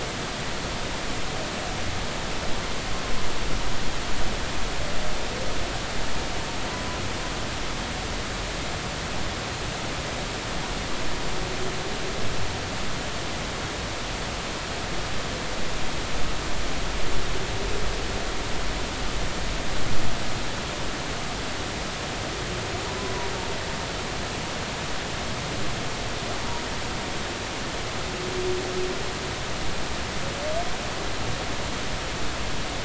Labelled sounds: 6.7	7.0	humpback whale, 0.96 to 1.1 kHz

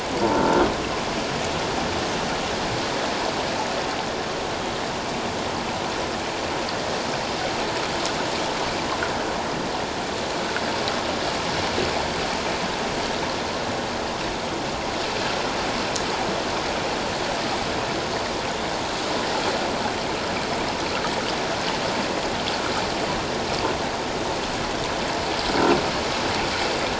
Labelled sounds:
25.6	25.8	croaking sound likely from a nearby submerged object, 1.3 to 1.6 kHz

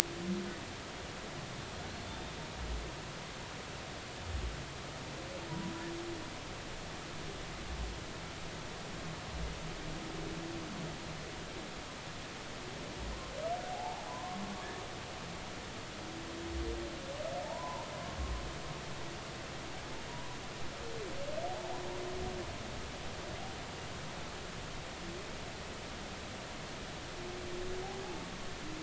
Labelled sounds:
2.0	2.3	humpback whale, 3.5 to 3.7 kHz
5.5	5.7	humpback whale, 0.93 to 1.0 kHz
13.7	14.5	humpback whale, 0.80 to 1.2 kHz
17.5	17.9	humpback whale, 0.80 to 1.1 kHz
21.5	21.8	humpback whale, 0.80 to 0.93 kHz
28.0	28.3	humpback whale, 0.80 to 0.93 kHz

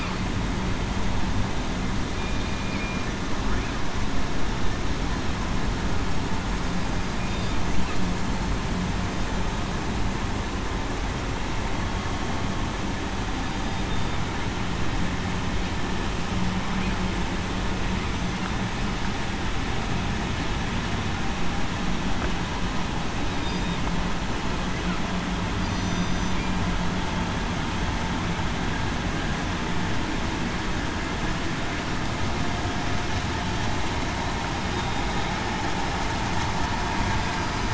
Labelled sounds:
2.4	2.8	killer whale, southern resident, 2.3 to 2.5 kHz
13.4	13.8	killer whale, southern resident, 4.8 to 4.9 kHz
23.4	23.7	killer whale, southern resident, 4.8 to 4.9 kHz
25.6	26.3	killer whale, southern resident, 4.8 to 6.1 kHz
34.7	35.0	killer whale, southern resident, 3.7 to 3.8 kHz
37.3	37.7	killer whale, southern resident, 4.8 to 4.9 kHz

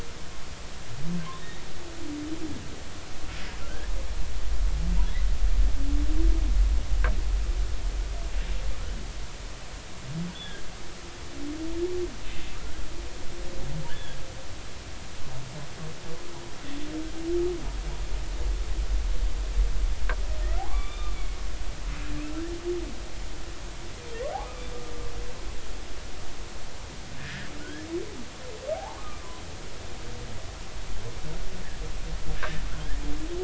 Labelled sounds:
3.6	3.9	humpback whale, 1.3 to 1.8 kHz
10.3	10.6	humpback whale, 3.1 to 3.6 kHz
12.5	12.8	humpback whale, 1.2 to 1.7 kHz
13.9	14.2	humpback whale, 1.5 to 3.6 kHz
20.6	21.4	humpback whale, 0.96 to 3.7 kHz
27.2	27.8	humpback whale, 1.4 to 2.0 kHz
28.7	29.3	humpback whale, 0.80 to 1.3 kHz

